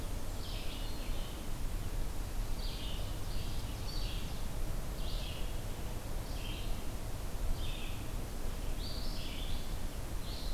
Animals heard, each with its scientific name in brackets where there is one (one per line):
Ovenbird (Seiurus aurocapilla)
Red-eyed Vireo (Vireo olivaceus)